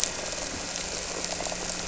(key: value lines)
label: anthrophony, boat engine
recorder: SoundTrap 300

label: biophony
recorder: SoundTrap 300